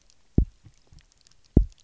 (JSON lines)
{"label": "biophony, double pulse", "recorder": "SoundTrap 300"}